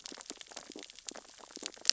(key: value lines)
label: biophony, stridulation
recorder: SoundTrap 600 or HydroMoth

label: biophony, sea urchins (Echinidae)
recorder: SoundTrap 600 or HydroMoth